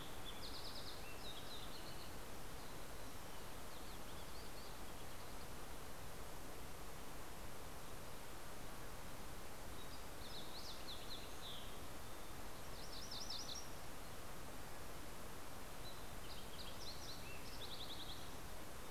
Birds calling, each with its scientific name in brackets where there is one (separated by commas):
Fox Sparrow (Passerella iliaca), MacGillivray's Warbler (Geothlypis tolmiei)